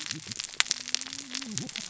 {"label": "biophony, cascading saw", "recorder": "SoundTrap 600 or HydroMoth"}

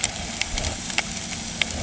{"label": "anthrophony, boat engine", "recorder": "HydroMoth"}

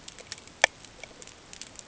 {"label": "ambient", "recorder": "HydroMoth"}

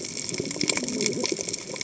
{"label": "biophony, cascading saw", "recorder": "HydroMoth"}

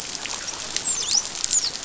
{"label": "biophony, dolphin", "recorder": "SoundTrap 500"}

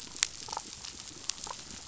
{"label": "biophony, damselfish", "recorder": "SoundTrap 500"}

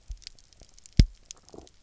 {"label": "biophony, double pulse", "recorder": "SoundTrap 300"}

